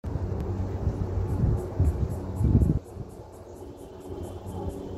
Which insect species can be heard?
Yoyetta celis